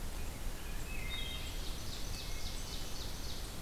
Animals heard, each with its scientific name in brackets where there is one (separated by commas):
Ovenbird (Seiurus aurocapilla), Wood Thrush (Hylocichla mustelina)